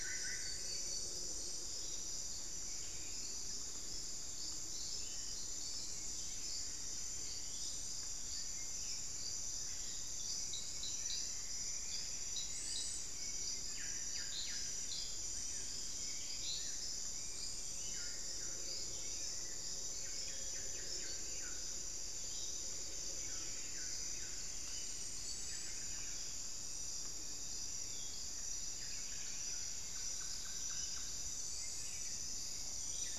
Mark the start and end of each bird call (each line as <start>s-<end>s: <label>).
0.0s-0.7s: Solitary Black Cacique (Cacicus solitarius)
0.0s-33.2s: Buff-throated Saltator (Saltator maximus)
10.6s-13.0s: Plumbeous Antbird (Myrmelastes hyperythrus)
13.6s-14.8s: Buff-breasted Wren (Cantorchilus leucotis)
17.7s-33.2s: Solitary Black Cacique (Cacicus solitarius)